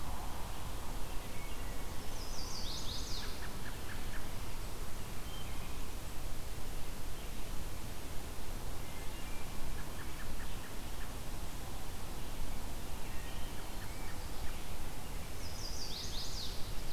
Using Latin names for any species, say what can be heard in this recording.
Setophaga pensylvanica, Turdus migratorius, Hylocichla mustelina